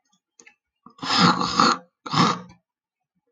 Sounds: Throat clearing